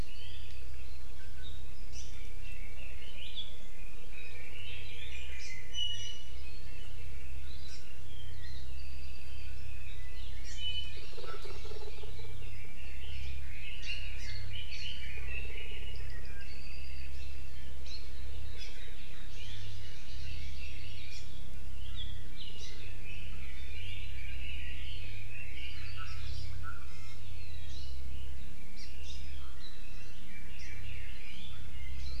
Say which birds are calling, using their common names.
Red-billed Leiothrix, Hawaii Amakihi, Iiwi, Apapane